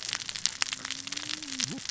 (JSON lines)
{"label": "biophony, cascading saw", "recorder": "SoundTrap 600 or HydroMoth"}